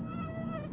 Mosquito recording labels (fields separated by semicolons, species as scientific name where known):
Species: Aedes albopictus; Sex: male; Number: one; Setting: insect culture